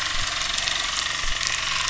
{"label": "anthrophony, boat engine", "recorder": "SoundTrap 300"}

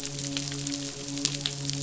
{"label": "biophony, midshipman", "recorder": "SoundTrap 500"}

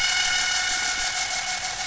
{"label": "anthrophony, boat engine", "recorder": "SoundTrap 500"}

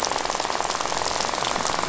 {"label": "biophony, rattle", "recorder": "SoundTrap 500"}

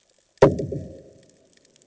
{"label": "anthrophony, bomb", "recorder": "HydroMoth"}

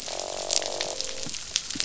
{"label": "biophony, croak", "recorder": "SoundTrap 500"}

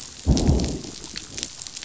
{"label": "biophony, growl", "recorder": "SoundTrap 500"}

